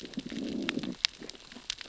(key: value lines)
label: biophony, growl
recorder: SoundTrap 600 or HydroMoth